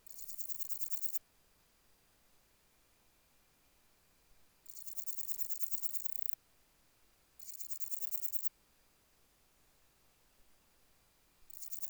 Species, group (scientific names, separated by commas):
Parnassiana coracis, Orthoptera